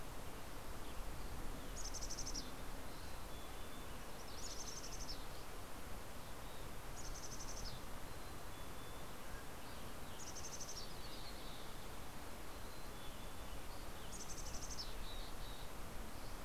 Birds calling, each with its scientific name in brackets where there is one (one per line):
Mountain Quail (Oreortyx pictus)
Western Tanager (Piranga ludoviciana)
Mountain Chickadee (Poecile gambeli)